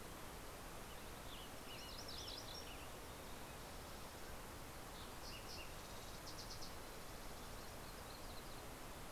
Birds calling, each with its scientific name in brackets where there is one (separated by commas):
Yellow-rumped Warbler (Setophaga coronata), Western Tanager (Piranga ludoviciana), Fox Sparrow (Passerella iliaca), MacGillivray's Warbler (Geothlypis tolmiei)